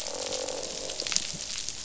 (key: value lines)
label: biophony, croak
recorder: SoundTrap 500